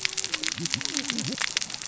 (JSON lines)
{"label": "biophony, cascading saw", "recorder": "SoundTrap 600 or HydroMoth"}